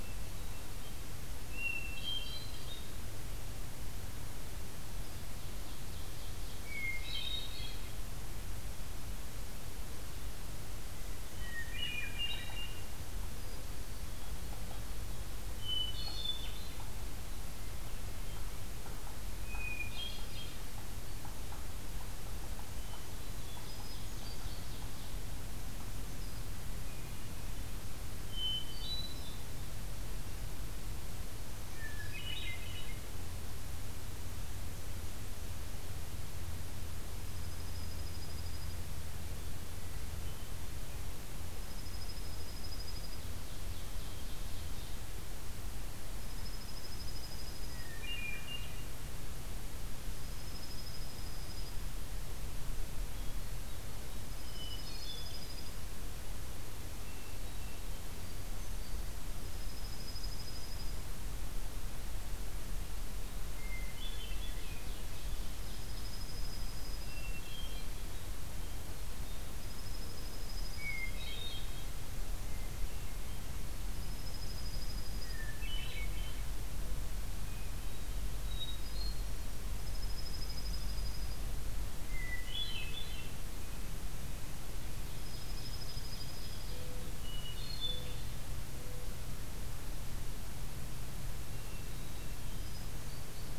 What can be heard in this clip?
Hermit Thrush, Ovenbird, Black-throated Green Warbler, Dark-eyed Junco